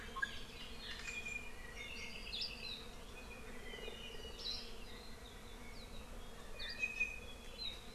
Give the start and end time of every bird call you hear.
[1.06, 2.16] Iiwi (Drepanis coccinea)
[1.96, 2.76] Apapane (Himatione sanguinea)
[6.56, 7.46] Iiwi (Drepanis coccinea)

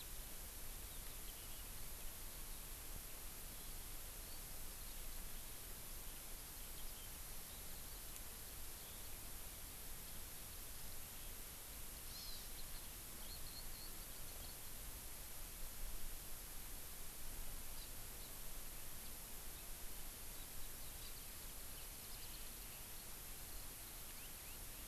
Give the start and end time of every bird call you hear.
[12.00, 12.40] Hawaii Amakihi (Chlorodrepanis virens)
[13.30, 13.90] Eurasian Skylark (Alauda arvensis)
[14.00, 14.60] Hawaii Amakihi (Chlorodrepanis virens)
[17.70, 17.90] Hawaii Amakihi (Chlorodrepanis virens)
[18.20, 18.30] Hawaii Amakihi (Chlorodrepanis virens)
[22.00, 22.40] Warbling White-eye (Zosterops japonicus)

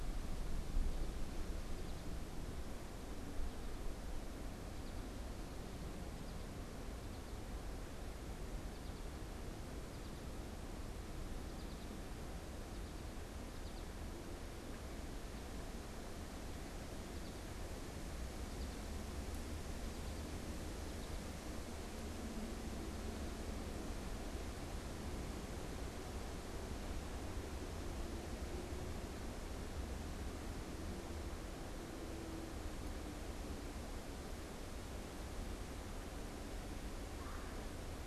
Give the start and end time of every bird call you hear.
[1.54, 23.54] American Goldfinch (Spinus tristis)
[37.14, 37.64] Red-bellied Woodpecker (Melanerpes carolinus)

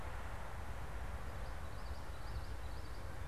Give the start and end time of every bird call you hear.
[1.50, 3.20] Common Yellowthroat (Geothlypis trichas)

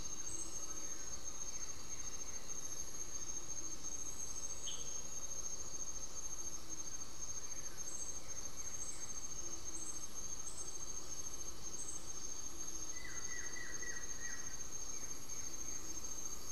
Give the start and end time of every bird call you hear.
[0.39, 10.09] Blue-gray Saltator (Saltator coerulescens)
[12.88, 14.79] Buff-throated Woodcreeper (Xiphorhynchus guttatus)
[13.98, 16.48] Blue-gray Saltator (Saltator coerulescens)

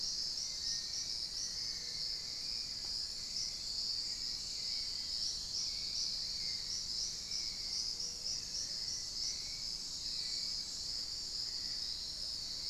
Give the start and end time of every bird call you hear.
[0.00, 12.69] Hauxwell's Thrush (Turdus hauxwelli)
[0.48, 2.48] Black-faced Antthrush (Formicarius analis)
[3.68, 6.18] Dusky-throated Antshrike (Thamnomanes ardesiacus)

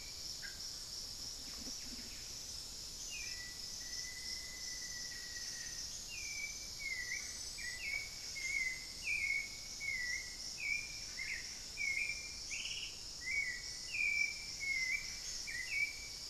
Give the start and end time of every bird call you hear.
[0.00, 16.29] unidentified bird
[1.17, 2.77] Buff-breasted Wren (Cantorchilus leucotis)
[2.97, 3.47] Hauxwell's Thrush (Turdus hauxwelli)
[3.17, 5.97] Black-faced Antthrush (Formicarius analis)
[4.87, 5.87] Buff-breasted Wren (Cantorchilus leucotis)
[6.37, 16.29] Hauxwell's Thrush (Turdus hauxwelli)

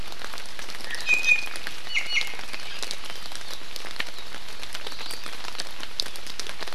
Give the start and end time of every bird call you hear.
[0.86, 2.36] Iiwi (Drepanis coccinea)

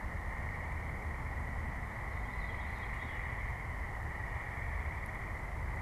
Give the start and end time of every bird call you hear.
[1.94, 5.82] Veery (Catharus fuscescens)

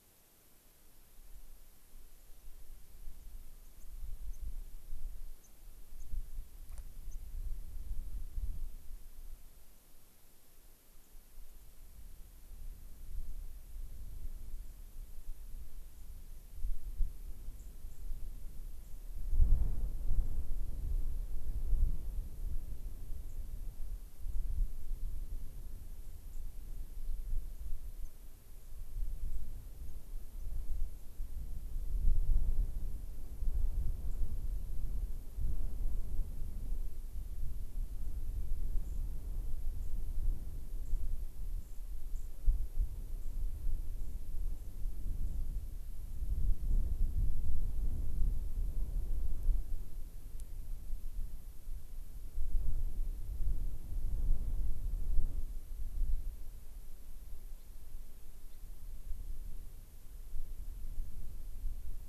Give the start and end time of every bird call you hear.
[3.55, 7.25] White-crowned Sparrow (Zonotrichia leucophrys)
[10.95, 11.15] White-crowned Sparrow (Zonotrichia leucophrys)
[17.55, 19.05] White-crowned Sparrow (Zonotrichia leucophrys)
[23.25, 23.45] White-crowned Sparrow (Zonotrichia leucophrys)
[25.95, 26.45] White-crowned Sparrow (Zonotrichia leucophrys)
[27.95, 28.05] White-crowned Sparrow (Zonotrichia leucophrys)
[28.55, 28.75] White-crowned Sparrow (Zonotrichia leucophrys)
[29.25, 29.45] White-crowned Sparrow (Zonotrichia leucophrys)
[29.85, 29.95] White-crowned Sparrow (Zonotrichia leucophrys)
[30.35, 31.05] White-crowned Sparrow (Zonotrichia leucophrys)
[34.05, 34.25] White-crowned Sparrow (Zonotrichia leucophrys)
[38.75, 39.05] White-crowned Sparrow (Zonotrichia leucophrys)
[39.75, 39.95] White-crowned Sparrow (Zonotrichia leucophrys)
[40.75, 41.05] White-crowned Sparrow (Zonotrichia leucophrys)
[41.55, 42.45] White-crowned Sparrow (Zonotrichia leucophrys)
[43.15, 47.55] White-crowned Sparrow (Zonotrichia leucophrys)
[57.55, 57.75] Gray-crowned Rosy-Finch (Leucosticte tephrocotis)
[58.45, 58.65] Gray-crowned Rosy-Finch (Leucosticte tephrocotis)

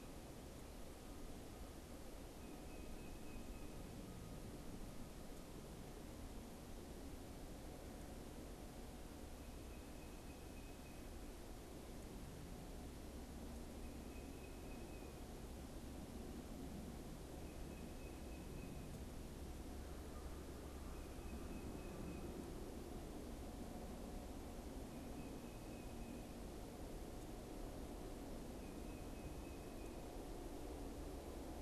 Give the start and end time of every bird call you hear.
[2.00, 4.10] Tufted Titmouse (Baeolophus bicolor)
[9.40, 11.40] Tufted Titmouse (Baeolophus bicolor)
[13.50, 15.50] Tufted Titmouse (Baeolophus bicolor)
[16.90, 19.00] Tufted Titmouse (Baeolophus bicolor)
[19.80, 21.60] American Crow (Corvus brachyrhynchos)
[20.60, 22.60] Tufted Titmouse (Baeolophus bicolor)
[24.70, 26.80] Tufted Titmouse (Baeolophus bicolor)
[28.30, 30.30] Tufted Titmouse (Baeolophus bicolor)

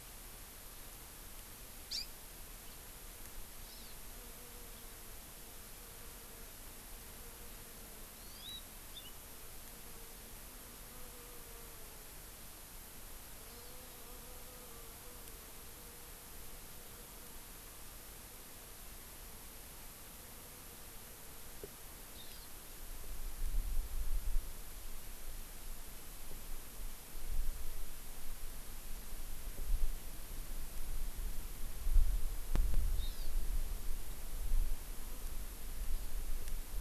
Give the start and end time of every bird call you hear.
[1.84, 2.04] House Finch (Haemorhous mexicanus)
[3.64, 3.94] Hawaii Amakihi (Chlorodrepanis virens)
[8.04, 8.64] Hawaii Amakihi (Chlorodrepanis virens)
[8.94, 9.14] House Finch (Haemorhous mexicanus)
[13.44, 13.94] Hawaii Amakihi (Chlorodrepanis virens)
[22.14, 22.44] Hawaii Amakihi (Chlorodrepanis virens)
[32.94, 33.34] Hawaii Amakihi (Chlorodrepanis virens)

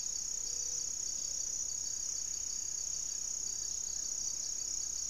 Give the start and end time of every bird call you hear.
[0.00, 5.09] Amazonian Trogon (Trogon ramonianus)
[0.00, 5.09] Gray-fronted Dove (Leptotila rufaxilla)

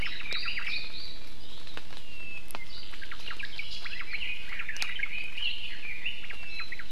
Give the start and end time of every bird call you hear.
[0.00, 0.93] Red-billed Leiothrix (Leiothrix lutea)
[0.03, 0.73] Omao (Myadestes obscurus)
[0.23, 0.63] Iiwi (Drepanis coccinea)
[3.03, 5.13] Omao (Myadestes obscurus)
[4.73, 6.33] Red-billed Leiothrix (Leiothrix lutea)
[6.23, 6.83] Omao (Myadestes obscurus)

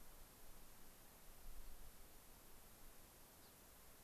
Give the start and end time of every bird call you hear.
[3.32, 3.62] Gray-crowned Rosy-Finch (Leucosticte tephrocotis)

